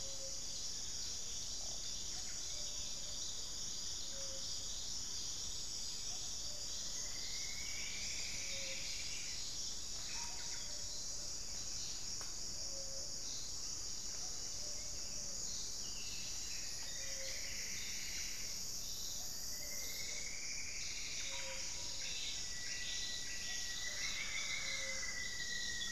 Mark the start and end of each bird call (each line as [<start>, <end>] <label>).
[0.00, 25.91] Gray-fronted Dove (Leptotila rufaxilla)
[6.32, 10.02] Plumbeous Antbird (Myrmelastes hyperythrus)
[15.62, 22.11] Plumbeous Antbird (Myrmelastes hyperythrus)
[21.91, 25.91] Rufous-fronted Antthrush (Formicarius rufifrons)